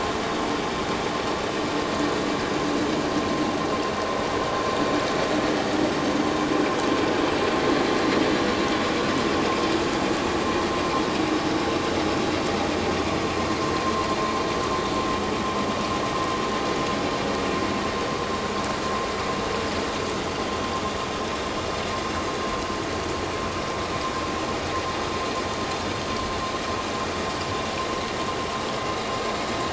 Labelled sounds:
13.8	14.1	vessel noise, 0.91 to 1.1 kHz

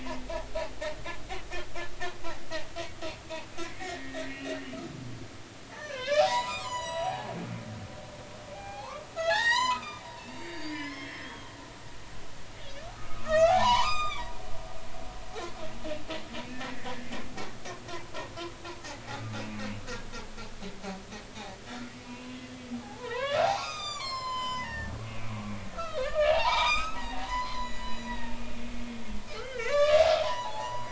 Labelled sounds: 3.6	4.8	humpback whale, 1.7 to 3.0 kHz
5.7	7.3	humpback whale, 0.80 to 8.0 kHz
8.5	11.5	humpback whale, 0.80 to 7.2 kHz
13.0	14.2	humpback whale, 0.80 to 7.6 kHz
22.0	22.3	humpback whale, 2.4 to 2.8 kHz
22.8	25.4	humpback whale, 0.80 to 7.6 kHz
25.7	28.3	humpback whale, 0.80 to 7.8 kHz
29.4	30.9	humpback whale, 0.80 to 7.1 kHz

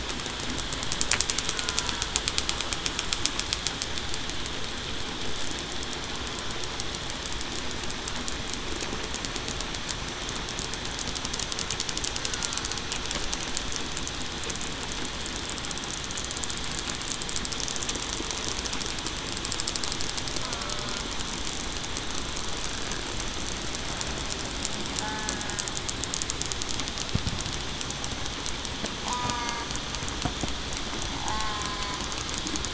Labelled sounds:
20.5	20.8	killer whale, southern resident, 1.3 to 1.5 kHz
29.1	29.6	killer whale, southern resident, 1.1 to 1.2 kHz
31.2	31.6	killer whale, southern resident, 0.75 to 0.91 kHz

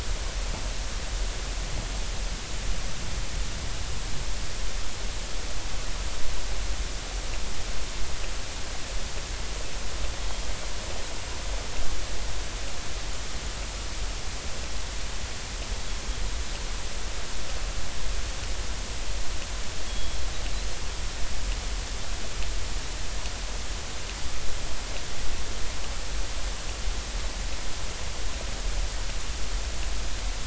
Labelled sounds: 19.9	20.2	Pacific white-sided dolphin, 3.3 to 3.4 kHz

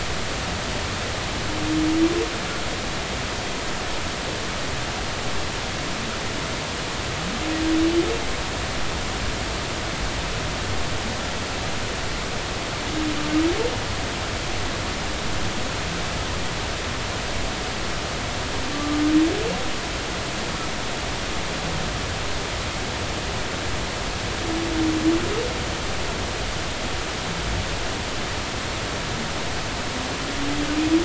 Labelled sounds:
18.7	19.0	humpback whale, 1.1 to 1.2 kHz

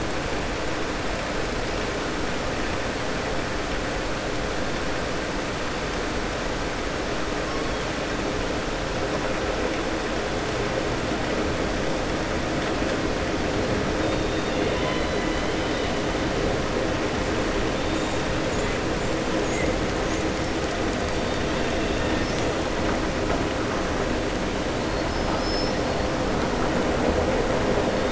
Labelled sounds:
14.3	15.1	killer whale, southern resident, 1.0 to 4.1 kHz
24.8	25.9	killer whale, southern resident, 4.1 to 5.8 kHz

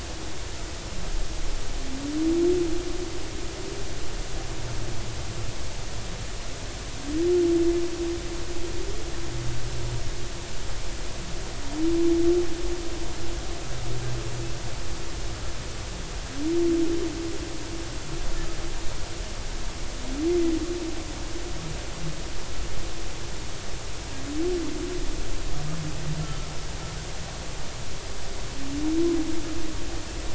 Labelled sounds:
26.2	26.5	humpback whale, 1.2 to 1.4 kHz

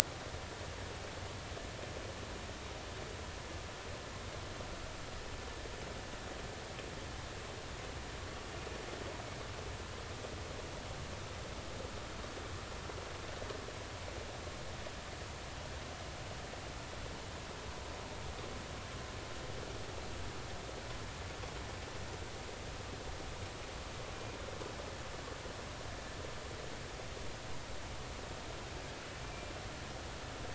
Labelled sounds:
29.2	29.5	killer whale, northern resident, G clan, 2.3 to 2.4 kHz

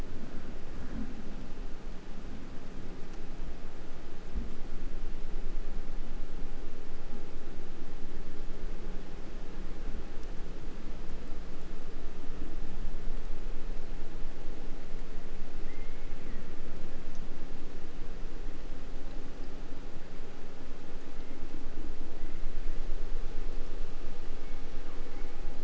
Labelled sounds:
15.6	16.7	killer whale, 1.1 to 2.6 kHz
20.9	21.5	killer whale, southern resident, 1.5 to 2.4 kHz
22.1	22.6	killer whale, southern resident, 1.2 to 2.2 kHz
24.4	25.5	killer whale, 0.74 to 2.7 kHz

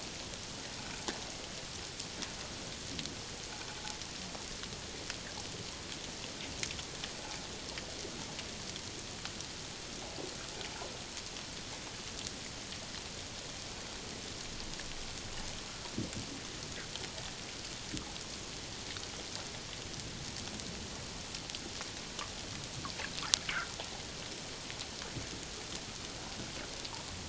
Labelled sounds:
23.5	23.7	fish, 1.2 to 1.7 kHz

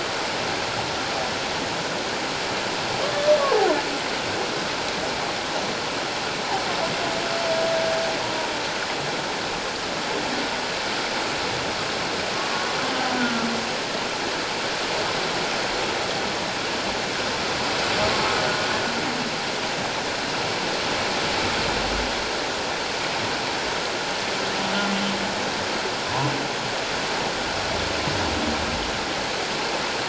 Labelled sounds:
13.2	13.5	humpback whale, 1.3 to 1.5 kHz

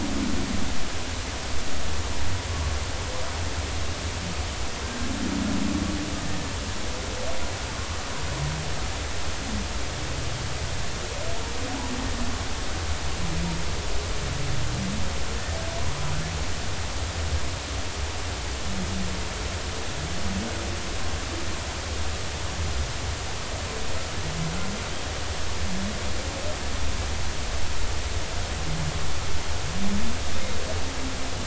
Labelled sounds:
4.8	5.1	killer whale, Bigg's (transient), 1.5 to 1.7 kHz

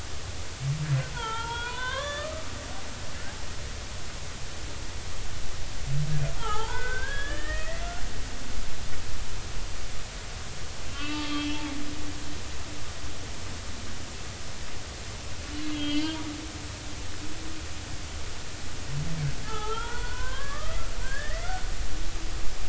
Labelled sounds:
1.1	2.4	humpback whale, 0.83 to 3.8 kHz
6.4	7.8	humpback whale, 0.80 to 3.5 kHz
10.9	11.6	humpback whale, 1.1 to 3.4 kHz
12.4	12.6	humpback whale, 2.6 to 2.7 kHz
15.7	16.2	humpback whale, 2.6 to 3.4 kHz
19.4	21.5	humpback whale, 0.80 to 2.2 kHz

